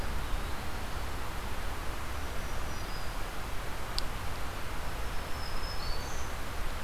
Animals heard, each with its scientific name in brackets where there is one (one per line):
Eastern Wood-Pewee (Contopus virens)
Black-throated Green Warbler (Setophaga virens)